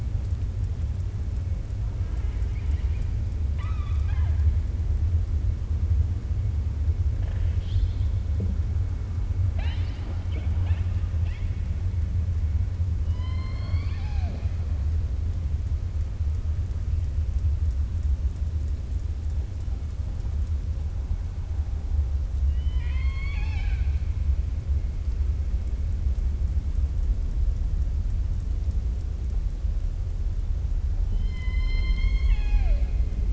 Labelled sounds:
2.0	3.1	killer whale, 0.73 to 7.8 kHz
3.4	4.5	killer whale, 0.74 to 4.8 kHz
7.2	8.1	killer whale, 1.5 to 5.4 kHz
13.0	14.6	killer whale, 0.45 to 5.9 kHz
22.4	24.0	killer whale, 0.85 to 6.5 kHz
31.0	33.0	killer whale, 0.61 to 6.6 kHz

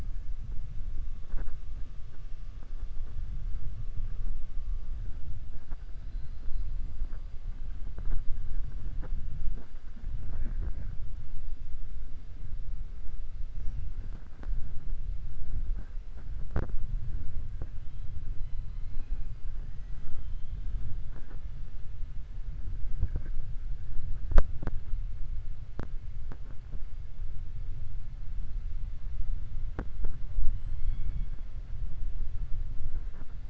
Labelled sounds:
18.4	19.3	killer whale, 2.1 to 4.2 kHz
19.9	20.6	killer whale, 1.3 to 4.0 kHz
30.5	31.4	killer whale, 2.1 to 8.0 kHz

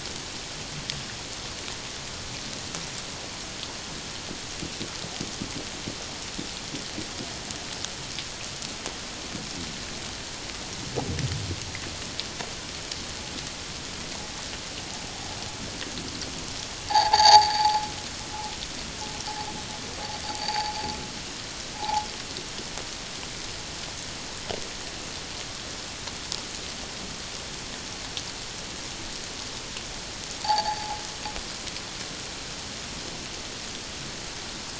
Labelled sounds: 16.9	17.8	noise likely from the mooring, 0.78 to 6.8 kHz
20.4	20.7	noise likely from the mooring, 0.78 to 4.8 kHz
21.8	22.1	noise likely from the mooring, 0.78 to 1.1 kHz
30.4	31.0	noise likely from the mooring, 0.78 to 4.7 kHz

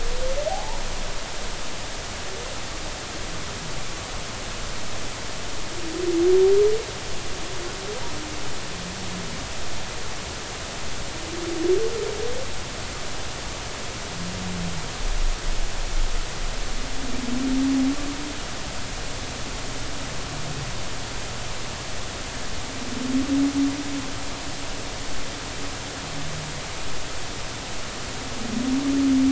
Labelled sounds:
0.5	0.8	humpback whale, 0.80 to 1.0 kHz

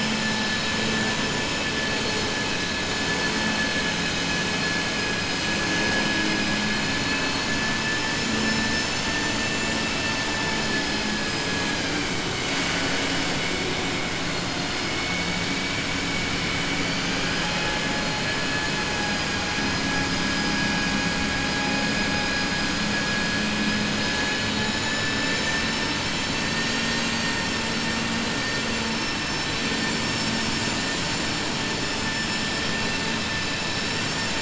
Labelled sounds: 11.4	12.0	vessel noise, 0.80 to 2.6 kHz

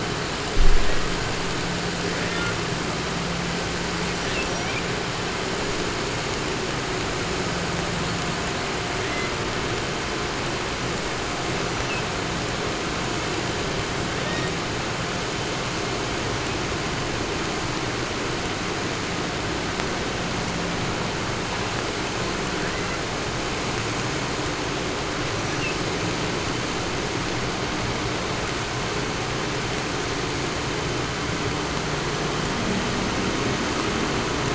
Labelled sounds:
0.4	1.5	killer whale, 0.58 to 2.3 kHz
2.0	2.7	killer whale, southern resident, call S18, 0.25 to 5.1 kHz
3.8	4.9	killer whale, 0.39 to 8.0 kHz
7.9	9.4	killer whale, southern resident, call S18, 0.75 to 8.0 kHz
11.5	12.2	killer whale, southern resident, 1.0 to 6.3 kHz
14.0	14.6	killer whale, southern resident, call S18, 0.75 to 7.5 kHz
22.4	23.0	killer whale, southern resident, call S18, 0.66 to 6.5 kHz
25.2	25.8	killer whale, southern resident, 1.2 to 6.3 kHz

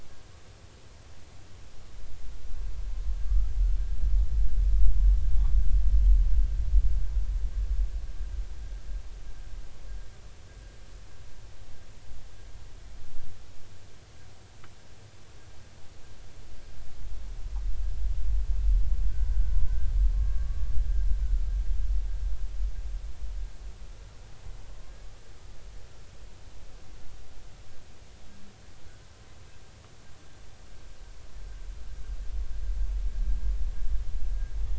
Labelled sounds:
20.1	20.6	humpback whale, 1.1 to 1.2 kHz

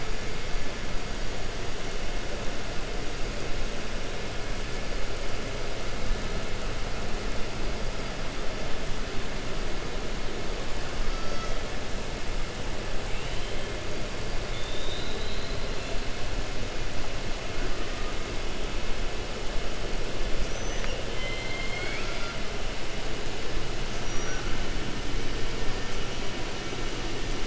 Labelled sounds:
21.1	22.3	killer whale, 1.3 to 5.6 kHz

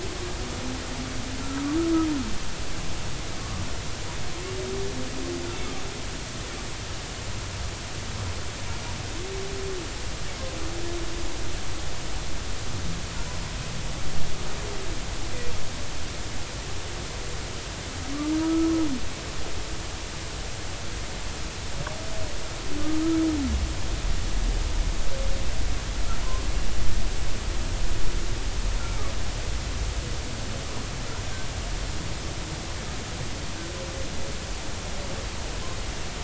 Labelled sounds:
1.4	1.8	humpback whale, 1.1 to 1.4 kHz
3.4	3.6	humpback whale, 1.1 to 1.3 kHz
18.4	18.7	humpback whale, 1.2 to 1.3 kHz

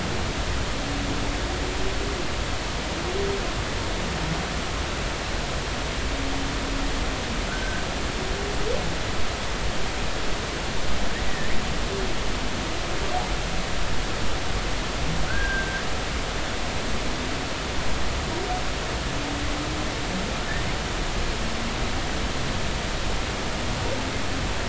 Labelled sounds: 7.5	7.8	humpback whale, 1.3 to 1.7 kHz
11.3	11.6	humpback whale, 1.7 to 2.0 kHz
15.3	15.8	humpback whale, 1.4 to 1.7 kHz

